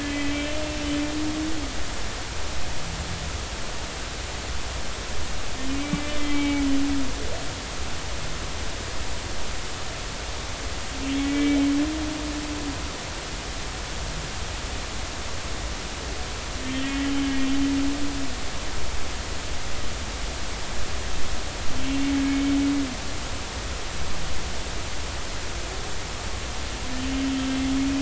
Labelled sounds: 0.0	0.5	humpback whale, 2.0 to 3.3 kHz
5.8	6.7	humpback whale, 2.2 to 3.3 kHz
11.2	11.6	humpback whale, 1.9 to 2.3 kHz
16.7	17.2	humpback whale, 2.9 to 3.3 kHz

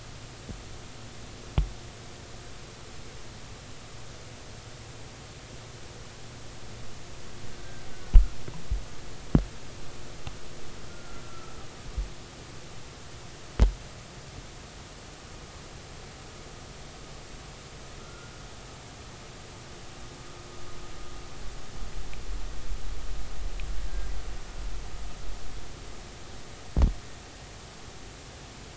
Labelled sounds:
10.9	11.6	killer whale, Bigg's (transient), 1.2 to 1.5 kHz
18.0	18.3	killer whale, Bigg's (transient), 1.3 to 1.5 kHz

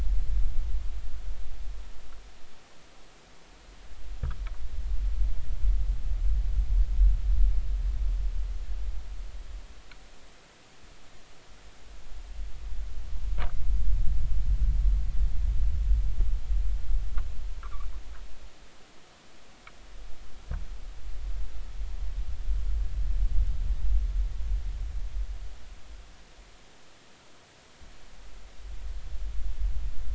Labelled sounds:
17.6	17.9	noise likely from the mooring, 0.93 to 1.5 kHz

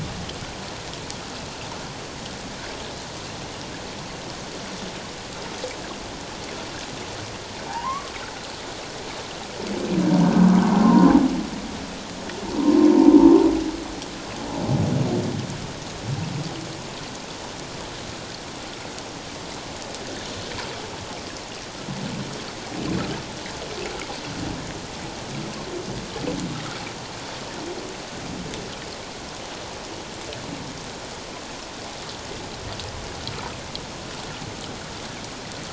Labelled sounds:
7.7	8.1	humpback whale, 0.78 to 1.2 kHz
10.2	10.5	humpback whale, 1.4 to 1.6 kHz
10.8	11.1	humpback whale, 0.91 to 1.1 kHz
12.6	12.9	humpback whale, 0.88 to 1.1 kHz

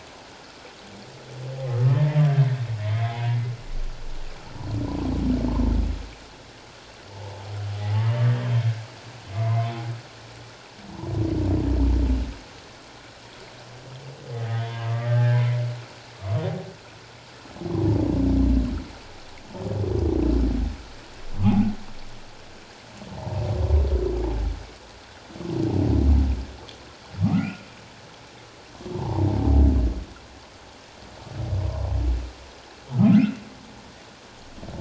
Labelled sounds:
1.7	2.2	humpback whale, 1.2 to 2.1 kHz
3.1	3.4	humpback whale, 0.78 to 1.0 kHz
9.3	9.7	humpback whale, 2.0 to 2.2 kHz
14.4	15.4	humpback whale, 0.81 to 3.5 kHz
23.1	23.4	humpback whale, 0.78 to 1.0 kHz
27.2	27.7	humpback whale, 1.1 to 2.8 kHz
28.9	29.3	humpback whale, 0.78 to 1.1 kHz
33.1	33.4	humpback whale, 1.2 to 1.6 kHz

